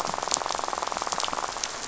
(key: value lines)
label: biophony, rattle
recorder: SoundTrap 500